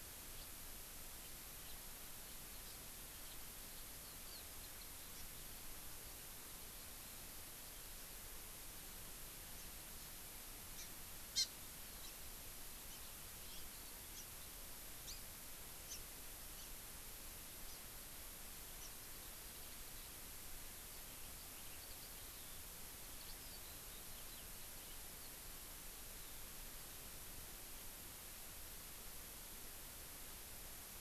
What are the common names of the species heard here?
House Finch, Hawaii Amakihi, Eurasian Skylark